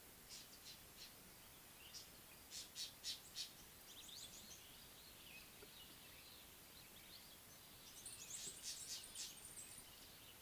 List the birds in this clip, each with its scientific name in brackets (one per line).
Superb Starling (Lamprotornis superbus)
Northern Puffback (Dryoscopus gambensis)